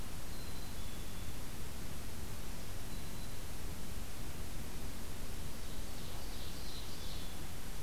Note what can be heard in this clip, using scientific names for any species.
Poecile atricapillus, Setophaga virens, Seiurus aurocapilla